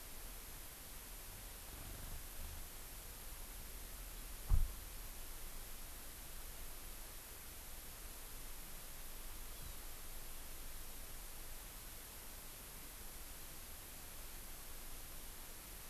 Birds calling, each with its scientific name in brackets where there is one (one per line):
Hawaii Amakihi (Chlorodrepanis virens)